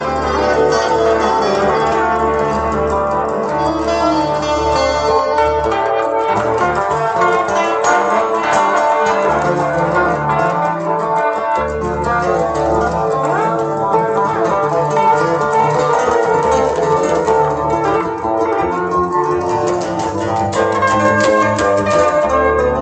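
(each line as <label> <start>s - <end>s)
Two electric guitar solos overlap, each using different effects. 0.0s - 22.8s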